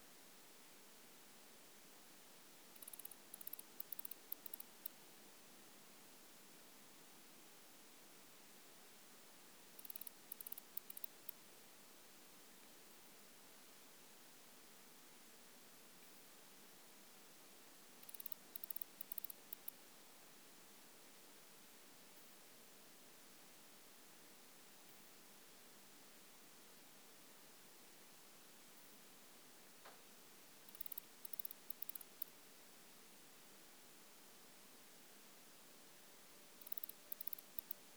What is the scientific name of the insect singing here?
Barbitistes obtusus